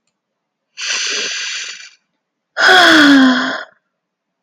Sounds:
Sigh